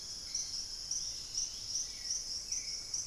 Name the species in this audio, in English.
Chestnut-winged Foliage-gleaner, Dusky-capped Greenlet, Hauxwell's Thrush